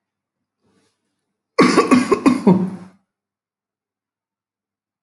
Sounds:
Cough